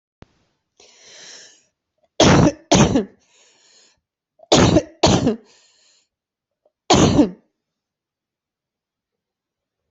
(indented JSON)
{
  "expert_labels": [
    {
      "quality": "poor",
      "cough_type": "dry",
      "dyspnea": false,
      "wheezing": false,
      "stridor": false,
      "choking": false,
      "congestion": false,
      "nothing": true,
      "diagnosis": "COVID-19",
      "severity": "mild"
    }
  ],
  "age": 35,
  "gender": "female",
  "respiratory_condition": true,
  "fever_muscle_pain": false,
  "status": "healthy"
}